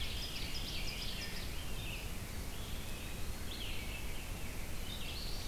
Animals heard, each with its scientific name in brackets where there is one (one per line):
Eastern Wood-Pewee (Contopus virens)
Veery (Catharus fuscescens)
Ovenbird (Seiurus aurocapilla)
Red-eyed Vireo (Vireo olivaceus)